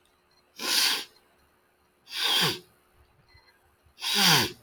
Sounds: Sniff